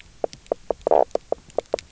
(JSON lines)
{"label": "biophony, knock croak", "recorder": "SoundTrap 300"}